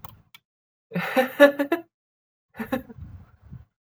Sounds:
Laughter